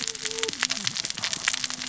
{"label": "biophony, cascading saw", "recorder": "SoundTrap 600 or HydroMoth"}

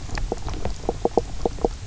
{"label": "biophony, knock croak", "recorder": "SoundTrap 300"}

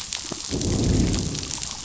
{"label": "biophony, growl", "recorder": "SoundTrap 500"}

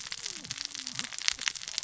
{"label": "biophony, cascading saw", "recorder": "SoundTrap 600 or HydroMoth"}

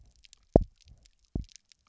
{"label": "biophony, double pulse", "recorder": "SoundTrap 300"}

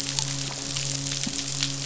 {"label": "biophony, midshipman", "recorder": "SoundTrap 500"}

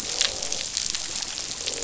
{"label": "biophony, croak", "recorder": "SoundTrap 500"}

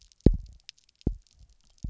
{"label": "biophony, double pulse", "recorder": "SoundTrap 300"}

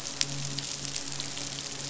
{"label": "biophony, midshipman", "recorder": "SoundTrap 500"}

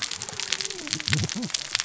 {"label": "biophony, cascading saw", "recorder": "SoundTrap 600 or HydroMoth"}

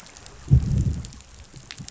{"label": "biophony, growl", "recorder": "SoundTrap 500"}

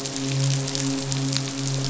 {"label": "biophony, midshipman", "recorder": "SoundTrap 500"}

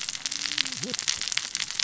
{"label": "biophony, cascading saw", "recorder": "SoundTrap 600 or HydroMoth"}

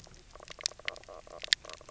{"label": "biophony, knock croak", "recorder": "SoundTrap 300"}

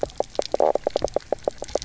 {"label": "biophony, knock croak", "recorder": "SoundTrap 300"}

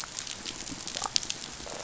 {"label": "biophony", "recorder": "SoundTrap 500"}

